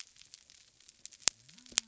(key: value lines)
label: biophony
recorder: SoundTrap 300